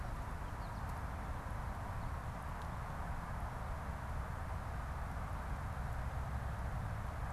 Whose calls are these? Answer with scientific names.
Spinus tristis